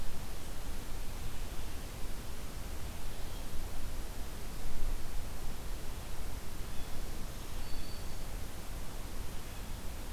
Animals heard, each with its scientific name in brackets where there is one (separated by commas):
Black-throated Green Warbler (Setophaga virens)